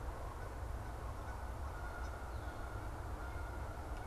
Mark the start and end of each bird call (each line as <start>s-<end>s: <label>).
1.1s-4.1s: Canada Goose (Branta canadensis)